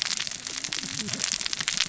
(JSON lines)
{"label": "biophony, cascading saw", "recorder": "SoundTrap 600 or HydroMoth"}